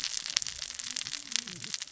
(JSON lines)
{"label": "biophony, cascading saw", "recorder": "SoundTrap 600 or HydroMoth"}